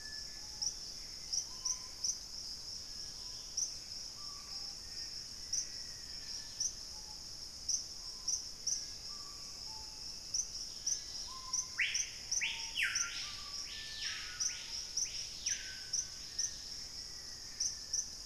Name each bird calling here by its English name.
Gray Antbird, Dusky-capped Greenlet, Screaming Piha, unidentified bird, Black-faced Antthrush, Black-spotted Bare-eye